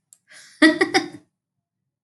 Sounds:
Laughter